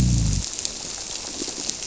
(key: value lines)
label: biophony
recorder: SoundTrap 300